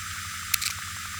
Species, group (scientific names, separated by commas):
Poecilimon tessellatus, Orthoptera